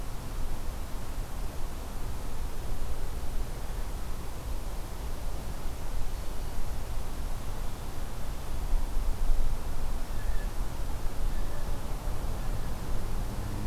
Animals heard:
Blue Jay (Cyanocitta cristata)

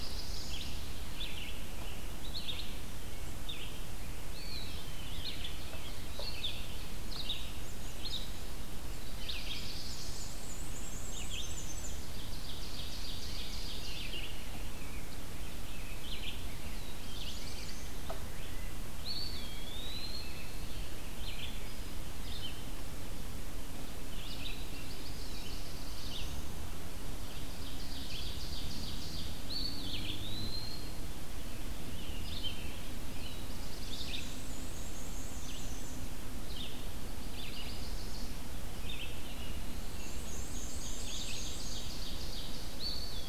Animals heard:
Red-eyed Vireo (Vireo olivaceus), Black-throated Blue Warbler (Setophaga caerulescens), Eastern Wood-Pewee (Contopus virens), Ovenbird (Seiurus aurocapilla), Rose-breasted Grosbeak (Pheucticus ludovicianus), Yellow-rumped Warbler (Setophaga coronata), Black-and-white Warbler (Mniotilta varia)

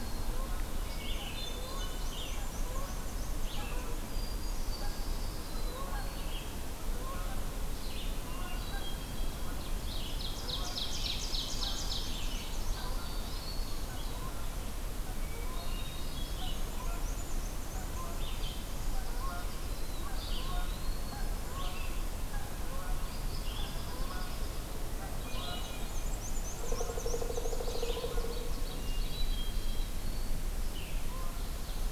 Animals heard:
Pileated Woodpecker (Dryocopus pileatus), Canada Goose (Branta canadensis), Red-eyed Vireo (Vireo olivaceus), Black-and-white Warbler (Mniotilta varia), Eastern Wood-Pewee (Contopus virens), Hermit Thrush (Catharus guttatus), Ovenbird (Seiurus aurocapilla), Pine Warbler (Setophaga pinus)

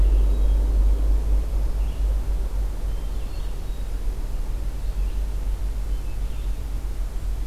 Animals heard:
Hermit Thrush (Catharus guttatus), Red-eyed Vireo (Vireo olivaceus)

